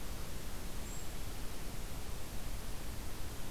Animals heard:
forest ambience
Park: Katahdin Woods and Waters National Monument